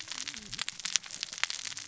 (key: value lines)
label: biophony, cascading saw
recorder: SoundTrap 600 or HydroMoth